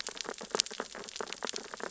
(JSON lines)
{"label": "biophony, sea urchins (Echinidae)", "recorder": "SoundTrap 600 or HydroMoth"}